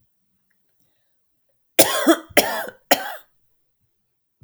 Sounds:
Cough